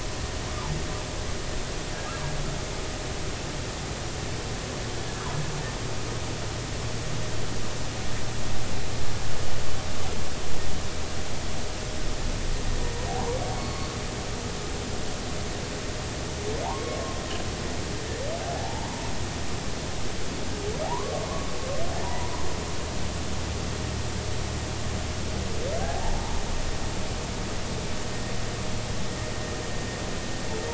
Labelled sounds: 13.1	13.9	humpback whale, 0.80 to 4.4 kHz
16.6	17.0	humpback whale, 0.80 to 1.2 kHz
18.4	19.0	humpback whale, 0.80 to 1.0 kHz
20.8	21.5	humpback whale, 0.80 to 1.2 kHz
22.0	22.3	humpback whale, 0.90 to 1.0 kHz
25.8	26.2	humpback whale, 0.80 to 0.96 kHz

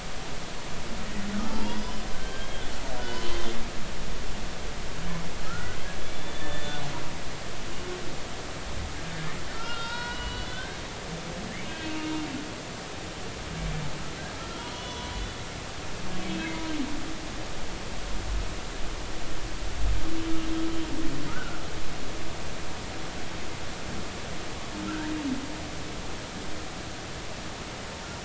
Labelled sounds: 1.4	2.6	humpback whale, 0.86 to 5.1 kHz
3.0	3.5	humpback whale, 1.4 to 3.3 kHz
5.5	5.8	humpback whale, 1.2 to 1.5 kHz
6.1	6.8	humpback whale, 1.7 to 3.6 kHz
9.5	10.8	humpback whale, 0.86 to 4.1 kHz
11.7	12.1	humpback whale, 2.5 to 3.3 kHz
14.4	15.1	humpback whale, 0.93 to 3.6 kHz
16.3	16.5	humpback whale, 2.5 to 2.6 kHz
21.3	21.6	humpback whale, 1.2 to 1.6 kHz
24.9	25.1	humpback whale, 1.3 to 1.8 kHz

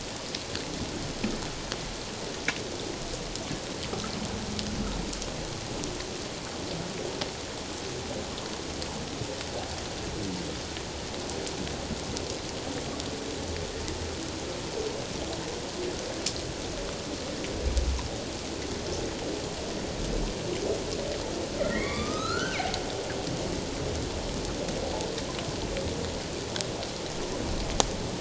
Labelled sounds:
21.6	22.7	humpback whale, 1.0 to 4.3 kHz

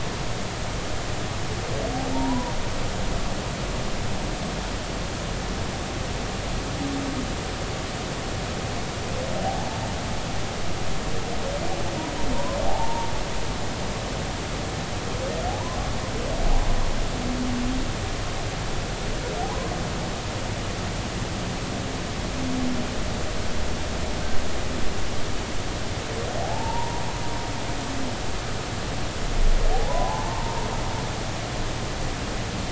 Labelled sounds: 2.1	2.5	humpback whale, 0.83 to 1.1 kHz
9.4	9.8	humpback whale, 0.80 to 0.99 kHz
12.3	13.1	humpback whale, 0.80 to 1.1 kHz
15.5	15.8	humpback whale, 0.80 to 1.1 kHz
19.4	19.7	humpback whale, 0.80 to 1.1 kHz
26.4	27.0	humpback whale, 0.80 to 1.0 kHz
29.7	30.6	humpback whale, 0.80 to 1.1 kHz

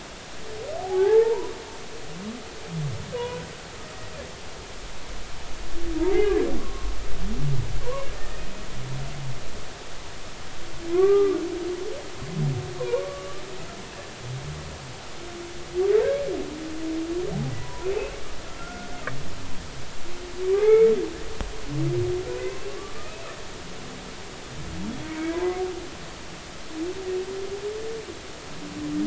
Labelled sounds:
0.8	1.5	humpback whale, 0.80 to 1.0 kHz
3.2	3.5	humpback whale, 0.90 to 1.1 kHz
6.1	6.9	humpback whale, 0.80 to 1.2 kHz
10.9	11.4	humpback whale, 0.99 to 1.6 kHz
12.8	13.4	humpback whale, 0.90 to 1.2 kHz
17.6	17.9	humpback whale, 0.93 to 1.1 kHz
18.4	18.9	humpback whale, 1.3 to 1.5 kHz
20.5	20.9	humpback whale, 0.80 to 2.3 kHz
22.2	23.2	humpback whale, 1.1 to 1.6 kHz
25.1	25.6	humpback whale, 0.86 to 2.4 kHz

